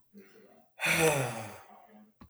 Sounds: Sigh